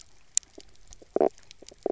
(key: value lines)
label: biophony, knock croak
recorder: SoundTrap 300